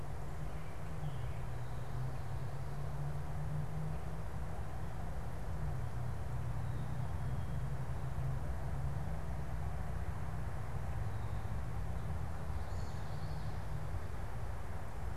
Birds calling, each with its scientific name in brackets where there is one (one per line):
American Robin (Turdus migratorius)
Common Yellowthroat (Geothlypis trichas)